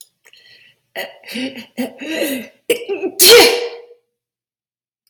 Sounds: Sneeze